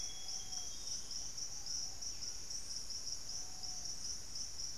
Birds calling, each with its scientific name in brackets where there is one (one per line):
Amazonian Grosbeak (Cyanoloxia rothschildii)
Ruddy Pigeon (Patagioenas subvinacea)
Plumbeous Antbird (Myrmelastes hyperythrus)
unidentified bird